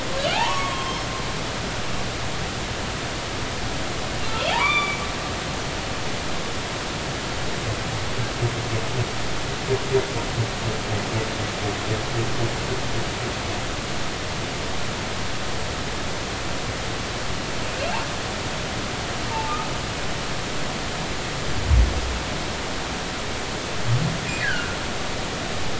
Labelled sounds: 0.3	1.1	humpback whale, 0.80 to 5.4 kHz
4.5	5.0	humpback whale, 0.80 to 3.6 kHz
17.8	18.0	humpback whale, 2.6 to 2.8 kHz
19.3	19.6	humpback whale, 0.83 to 0.96 kHz
24.4	24.8	humpback whale, 1.4 to 1.8 kHz

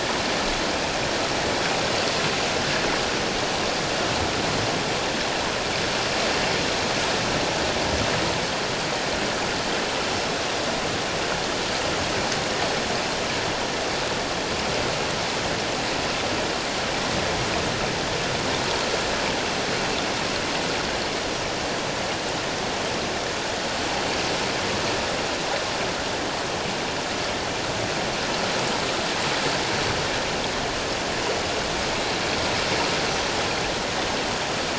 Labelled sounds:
33.0	33.3	Pacific white-sided dolphin, 5.8 to 6.1 kHz

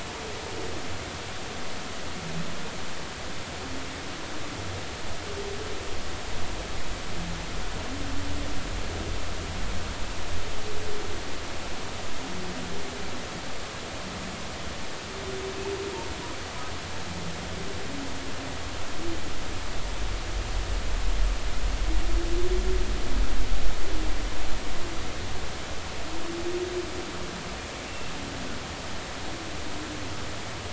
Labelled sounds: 27.9	28.1	humpback whale, 2.6 to 2.8 kHz

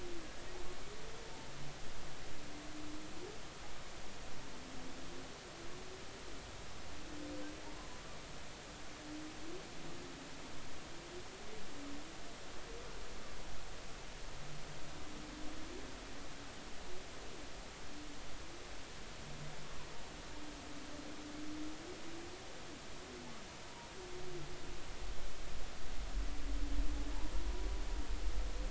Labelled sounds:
7.6	7.9	humpback whale, 0.83 to 1.2 kHz

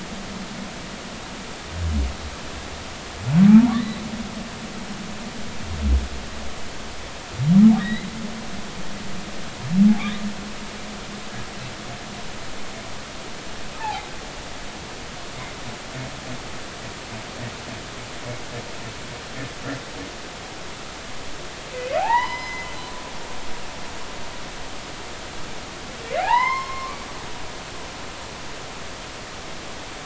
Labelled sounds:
3.5	4.0	humpback whale, 0.80 to 4.1 kHz
7.8	8.1	humpback whale, 1.8 to 4.1 kHz
13.8	14.0	humpback whale, 0.80 to 0.96 kHz
22.0	22.7	humpback whale, 0.80 to 5.2 kHz
26.0	27.0	humpback whale, 0.80 to 5.4 kHz

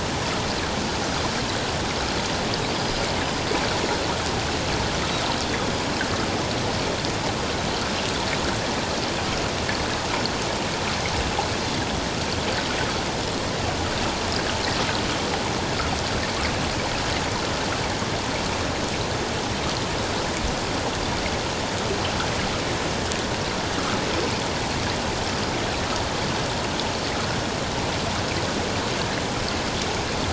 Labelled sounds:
2.7	3.0	Pacific white-sided dolphin, 4.8 to 5.0 kHz

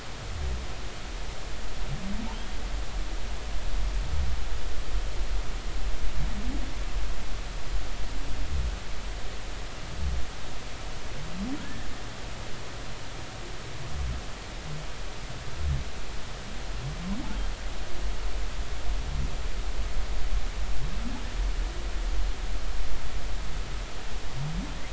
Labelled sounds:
11.6	11.9	humpback whale, 1.6 to 1.9 kHz

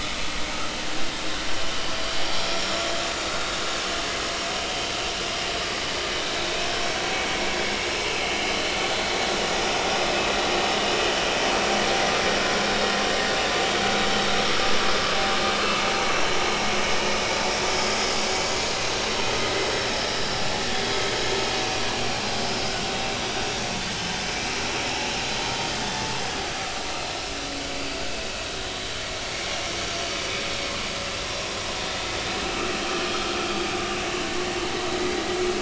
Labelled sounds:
23.9	24.1	vessel noise, 2.9 to 3.1 kHz
29.3	29.6	vessel noise, 5.4 to 5.6 kHz

